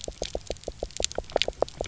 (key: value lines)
label: biophony, knock
recorder: SoundTrap 300